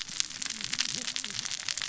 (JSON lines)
{"label": "biophony, cascading saw", "recorder": "SoundTrap 600 or HydroMoth"}